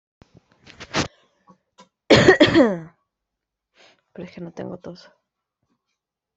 {"expert_labels": [{"quality": "ok", "cough_type": "unknown", "dyspnea": false, "wheezing": false, "stridor": false, "choking": false, "congestion": false, "nothing": true, "diagnosis": "healthy cough", "severity": "pseudocough/healthy cough"}], "age": 25, "gender": "female", "respiratory_condition": true, "fever_muscle_pain": true, "status": "symptomatic"}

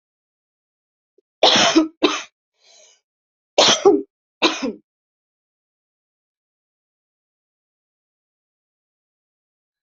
{"expert_labels": [{"quality": "poor", "cough_type": "unknown", "dyspnea": false, "wheezing": false, "stridor": false, "choking": false, "congestion": false, "nothing": true, "diagnosis": "healthy cough", "severity": "pseudocough/healthy cough"}], "age": 37, "gender": "female", "respiratory_condition": false, "fever_muscle_pain": false, "status": "symptomatic"}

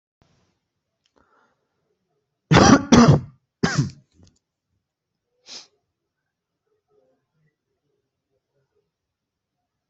{"expert_labels": [{"quality": "good", "cough_type": "dry", "dyspnea": false, "wheezing": false, "stridor": false, "choking": false, "congestion": true, "nothing": false, "diagnosis": "upper respiratory tract infection", "severity": "mild"}], "gender": "female", "respiratory_condition": false, "fever_muscle_pain": false, "status": "symptomatic"}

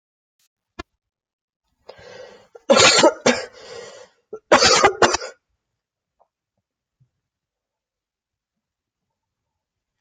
{"expert_labels": [{"quality": "good", "cough_type": "dry", "dyspnea": false, "wheezing": false, "stridor": false, "choking": false, "congestion": false, "nothing": true, "diagnosis": "upper respiratory tract infection", "severity": "mild"}], "age": 24, "gender": "female", "respiratory_condition": false, "fever_muscle_pain": false, "status": "symptomatic"}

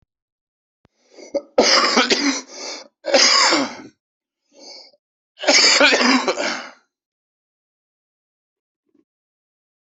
{"expert_labels": [{"quality": "good", "cough_type": "wet", "dyspnea": false, "wheezing": false, "stridor": false, "choking": false, "congestion": false, "nothing": true, "diagnosis": "lower respiratory tract infection", "severity": "severe"}], "age": 42, "gender": "male", "respiratory_condition": false, "fever_muscle_pain": false, "status": "healthy"}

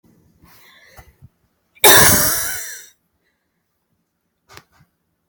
{"expert_labels": [{"quality": "good", "cough_type": "dry", "dyspnea": false, "wheezing": false, "stridor": false, "choking": false, "congestion": false, "nothing": true, "diagnosis": "obstructive lung disease", "severity": "mild"}], "age": 19, "gender": "female", "respiratory_condition": true, "fever_muscle_pain": true, "status": "symptomatic"}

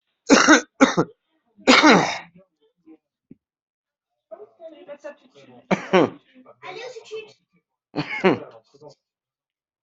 {"expert_labels": [{"quality": "ok", "cough_type": "dry", "dyspnea": false, "wheezing": false, "stridor": false, "choking": false, "congestion": false, "nothing": true, "diagnosis": "lower respiratory tract infection", "severity": "mild"}, {"quality": "ok", "cough_type": "wet", "dyspnea": false, "wheezing": false, "stridor": false, "choking": false, "congestion": false, "nothing": true, "diagnosis": "lower respiratory tract infection", "severity": "mild"}, {"quality": "good", "cough_type": "wet", "dyspnea": false, "wheezing": false, "stridor": false, "choking": false, "congestion": false, "nothing": true, "diagnosis": "upper respiratory tract infection", "severity": "mild"}, {"quality": "good", "cough_type": "dry", "dyspnea": false, "wheezing": false, "stridor": false, "choking": false, "congestion": false, "nothing": true, "diagnosis": "upper respiratory tract infection", "severity": "mild"}], "age": 33, "gender": "male", "respiratory_condition": true, "fever_muscle_pain": false, "status": "symptomatic"}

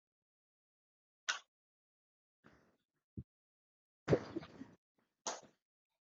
{"expert_labels": [{"quality": "no cough present", "dyspnea": false, "wheezing": false, "stridor": false, "choking": false, "congestion": false, "nothing": false}], "age": 31, "gender": "female", "respiratory_condition": true, "fever_muscle_pain": false, "status": "COVID-19"}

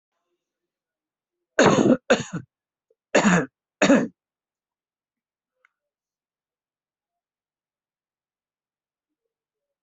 {"expert_labels": [{"quality": "good", "cough_type": "unknown", "dyspnea": false, "wheezing": false, "stridor": false, "choking": false, "congestion": false, "nothing": true, "diagnosis": "upper respiratory tract infection", "severity": "mild"}], "age": 60, "gender": "female", "respiratory_condition": false, "fever_muscle_pain": false, "status": "COVID-19"}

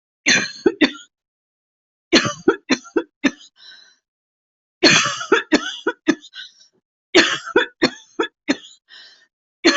{"expert_labels": [{"quality": "good", "cough_type": "dry", "dyspnea": true, "wheezing": false, "stridor": false, "choking": false, "congestion": false, "nothing": false, "diagnosis": "obstructive lung disease", "severity": "mild"}], "age": 46, "gender": "female", "respiratory_condition": false, "fever_muscle_pain": false, "status": "symptomatic"}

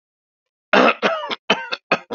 {"expert_labels": [{"quality": "good", "cough_type": "dry", "dyspnea": false, "wheezing": false, "stridor": false, "choking": false, "congestion": false, "nothing": true, "diagnosis": "upper respiratory tract infection", "severity": "mild"}]}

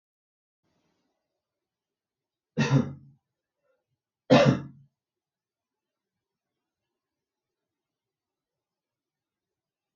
{"expert_labels": [{"quality": "good", "cough_type": "dry", "dyspnea": false, "wheezing": false, "stridor": false, "choking": false, "congestion": false, "nothing": true, "diagnosis": "upper respiratory tract infection", "severity": "mild"}], "age": 32, "gender": "male", "respiratory_condition": false, "fever_muscle_pain": false, "status": "symptomatic"}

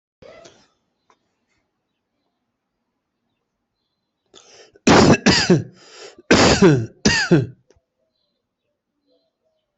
{"expert_labels": [{"quality": "ok", "cough_type": "dry", "dyspnea": false, "wheezing": false, "stridor": false, "choking": false, "congestion": false, "nothing": true, "diagnosis": "COVID-19", "severity": "mild"}], "age": 36, "gender": "male", "respiratory_condition": false, "fever_muscle_pain": false, "status": "healthy"}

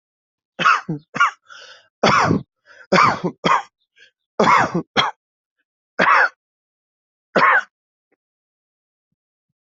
{"expert_labels": [{"quality": "good", "cough_type": "dry", "dyspnea": false, "wheezing": false, "stridor": false, "choking": false, "congestion": false, "nothing": true, "diagnosis": "COVID-19", "severity": "mild"}]}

